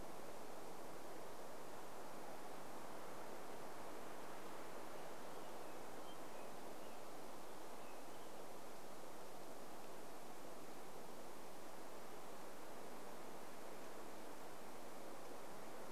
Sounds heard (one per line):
American Robin song